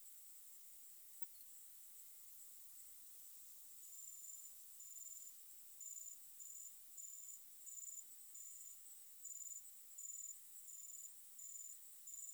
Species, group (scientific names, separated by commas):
Helicocercus triguttatus, Orthoptera